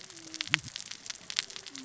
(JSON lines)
{"label": "biophony, cascading saw", "recorder": "SoundTrap 600 or HydroMoth"}